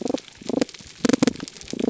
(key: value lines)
label: biophony, pulse
recorder: SoundTrap 300